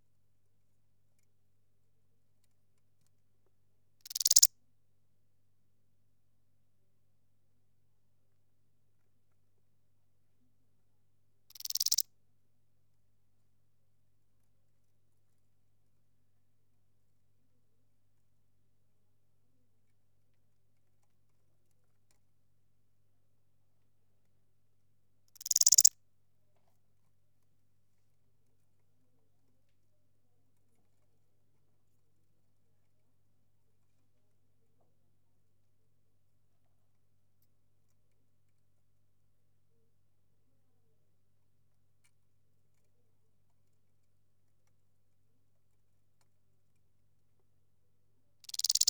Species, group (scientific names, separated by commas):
Albarracinia zapaterii, Orthoptera